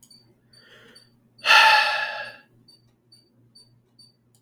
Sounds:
Sigh